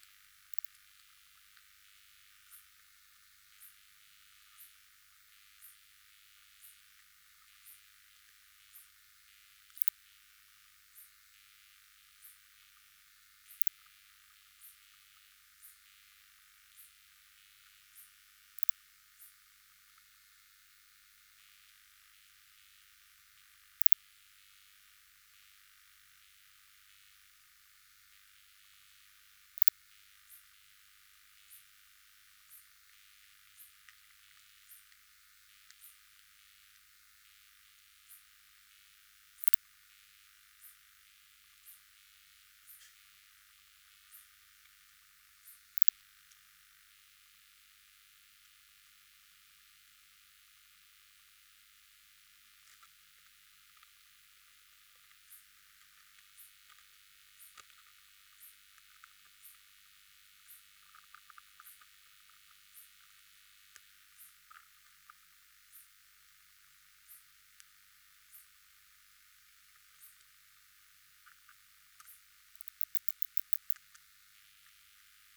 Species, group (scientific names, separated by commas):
Poecilimon deplanatus, Orthoptera